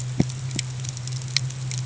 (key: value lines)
label: anthrophony, boat engine
recorder: HydroMoth